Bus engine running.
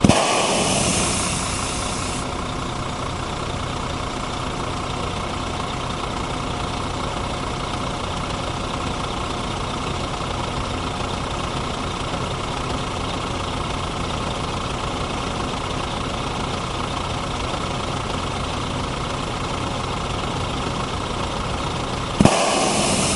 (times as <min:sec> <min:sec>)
0:00.0 0:08.8